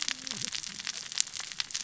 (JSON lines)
{"label": "biophony, cascading saw", "recorder": "SoundTrap 600 or HydroMoth"}